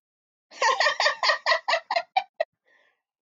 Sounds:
Laughter